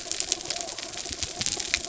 {"label": "biophony", "recorder": "SoundTrap 300"}
{"label": "anthrophony, mechanical", "recorder": "SoundTrap 300"}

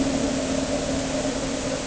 {"label": "anthrophony, boat engine", "recorder": "HydroMoth"}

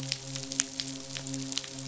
{"label": "biophony, midshipman", "recorder": "SoundTrap 500"}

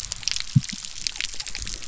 {"label": "biophony", "recorder": "SoundTrap 300"}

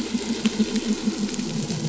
{"label": "anthrophony, boat engine", "recorder": "SoundTrap 500"}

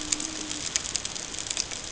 {"label": "ambient", "recorder": "HydroMoth"}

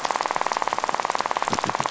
{"label": "biophony, rattle", "recorder": "SoundTrap 500"}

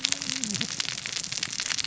{"label": "biophony, cascading saw", "recorder": "SoundTrap 600 or HydroMoth"}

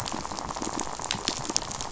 {"label": "biophony, rattle", "recorder": "SoundTrap 500"}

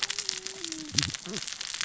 {"label": "biophony, cascading saw", "recorder": "SoundTrap 600 or HydroMoth"}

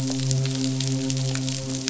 {"label": "biophony, midshipman", "recorder": "SoundTrap 500"}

